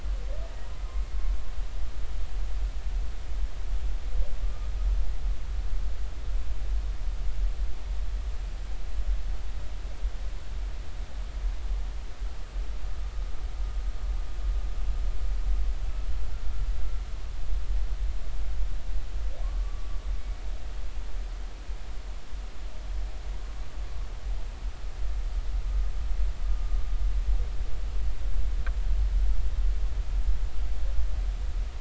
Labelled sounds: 4.4	4.7	humpback whale, 1.2 to 1.3 kHz
19.6	19.9	humpback whale, 1.1 to 1.2 kHz

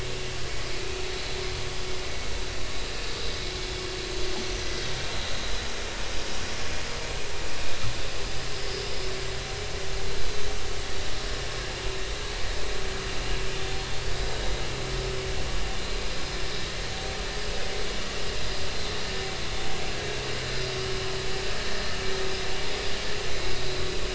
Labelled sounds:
23.3	23.9	vessel noise, 2.1 to 4.1 kHz

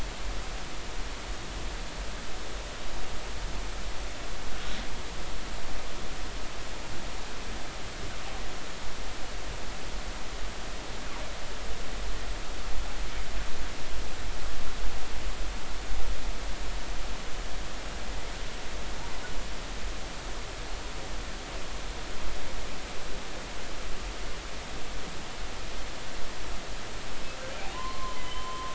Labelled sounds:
27.7	28.7	humpback whale, 0.90 to 3.2 kHz

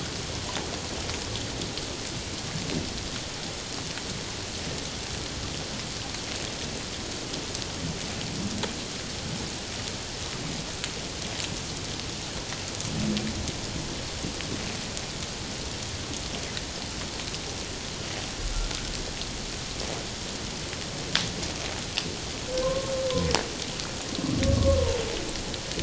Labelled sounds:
22.6	22.9	humpback whale, 0.97 to 1.1 kHz
24.5	24.8	humpback whale, 0.97 to 1.2 kHz

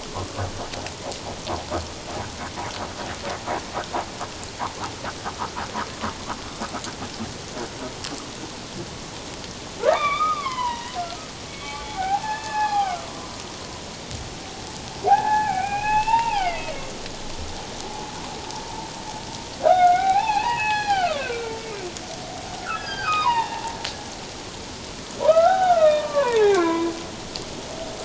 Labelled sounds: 9.8	11.0	humpback whale, 0.78 to 3.8 kHz
11.5	13.4	humpback whale, 0.78 to 2.7 kHz
15.0	16.7	humpback whale, 0.78 to 3.4 kHz
19.6	21.6	humpback whale, 0.78 to 6.0 kHz
22.6	23.7	humpback whale, 0.81 to 5.1 kHz
25.2	26.9	humpback whale, 0.78 to 3.8 kHz

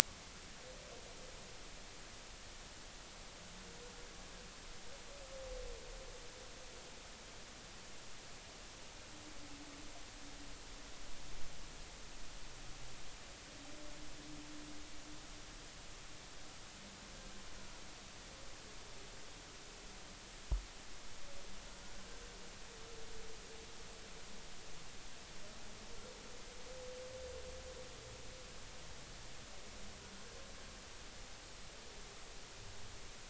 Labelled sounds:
22.0	22.2	humpback whale, 1.5 to 1.6 kHz

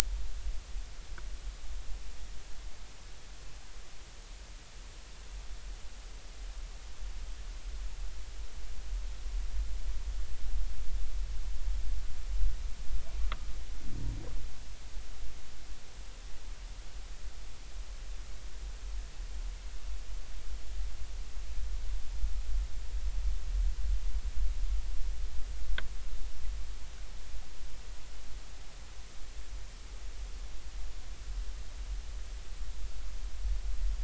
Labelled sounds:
13.2	13.5	humpback whale, 1.1 to 1.4 kHz

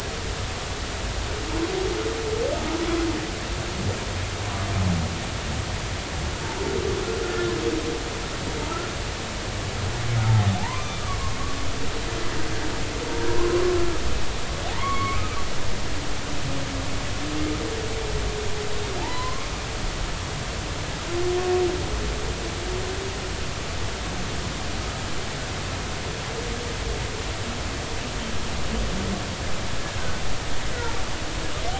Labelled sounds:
7.2	7.5	humpback whale, 1.3 to 1.5 kHz
10.6	11.0	humpback whale, 0.80 to 2.4 kHz
13.4	13.6	humpback whale, 0.93 to 1.1 kHz
14.7	15.4	humpback whale, 0.80 to 2.4 kHz
19.0	19.5	humpback whale, 0.80 to 1.2 kHz

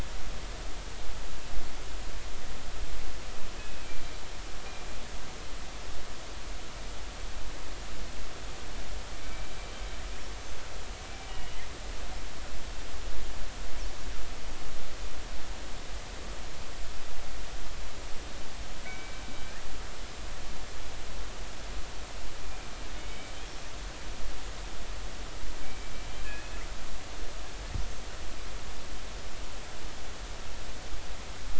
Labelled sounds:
9.2	9.6	killer whale, northern resident, G clan, 2.2 to 2.4 kHz
10.3	10.7	killer whale, northern resident, G clan, 6.2 to 6.5 kHz
11.3	11.6	killer whale, northern resident, G clan, 2.8 to 3.1 kHz
18.9	19.2	killer whale, northern resident, G clan, 2.2 to 2.4 kHz
23.0	23.3	killer whale, northern resident, G clan, 2.1 to 2.3 kHz
25.6	26.6	killer whale, northern resident, G clan, 2.2 to 2.7 kHz

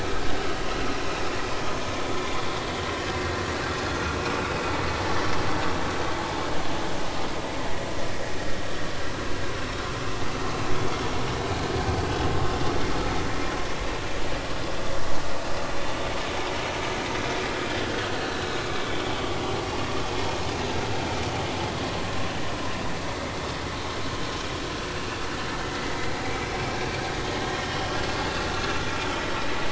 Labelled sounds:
12.4	12.7	vessel noise, 3.5 to 3.6 kHz
17.9	18.2	vessel noise, 1.4 to 1.7 kHz
25.6	26.0	vessel noise, 1.9 to 2.1 kHz
27.7	28.0	vessel noise, 2.8 to 3.0 kHz

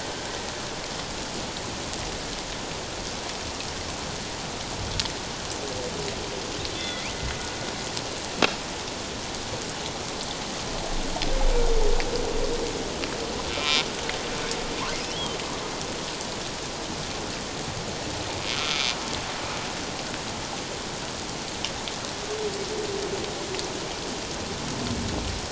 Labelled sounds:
6.7	7.1	humpback whale, 1.9 to 3.6 kHz
13.5	13.9	humpback whale, 2.1 to 2.5 kHz
15.1	15.4	humpback whale, 2.9 to 3.4 kHz
18.5	18.8	humpback whale, 1.2 to 1.4 kHz

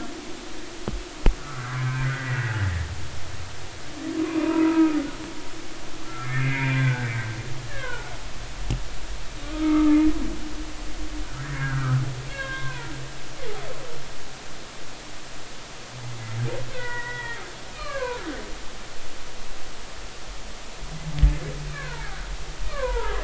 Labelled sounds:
1.4	2.9	humpback whale, 1.1 to 2.1 kHz
4.2	5.0	humpback whale, 0.90 to 2.6 kHz
6.1	8.1	humpback whale, 0.80 to 2.5 kHz
9.4	9.9	humpback whale, 1.1 to 1.3 kHz
11.4	12.9	humpback whale, 0.90 to 3.9 kHz
16.7	18.2	humpback whale, 0.86 to 3.4 kHz
21.7	22.2	humpback whale, 0.83 to 2.4 kHz
22.7	23.2	humpback whale, 0.86 to 1.8 kHz

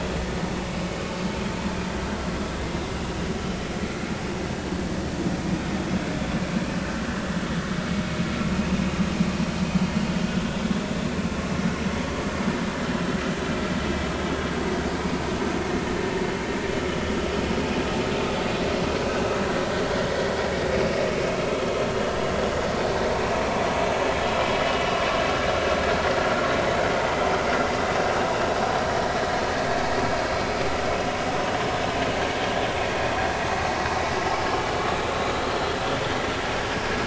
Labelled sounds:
20.1	20.4	vessel noise, 1.9 to 2.0 kHz
21.9	22.2	vessel noise, 2.8 to 3.0 kHz
24.6	24.8	vessel noise, 2.8 to 3.0 kHz
35.4	35.7	vessel noise, 4.1 to 4.4 kHz

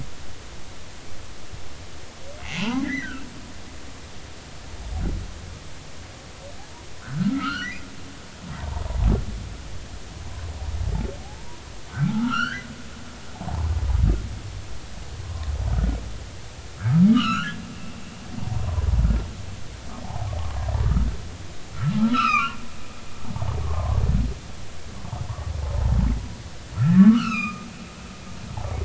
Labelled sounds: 2.4	3.3	humpback whale, 0.83 to 3.0 kHz
7.0	8.9	humpback whale, 0.83 to 3.2 kHz
11.2	11.6	humpback whale, 0.80 to 1.1 kHz
11.9	13.7	humpback whale, 0.80 to 4.5 kHz
15.2	15.5	humpback whale, 0.99 to 1.1 kHz
17.1	17.6	humpback whale, 1.1 to 4.3 kHz
18.4	18.8	humpback whale, 0.86 to 1.2 kHz
20.0	20.3	humpback whale, 0.80 to 1.1 kHz
21.7	22.6	humpback whale, 0.93 to 5.4 kHz
23.6	24.0	humpback whale, 0.96 to 1.2 kHz
26.8	27.7	humpback whale, 1.1 to 4.0 kHz

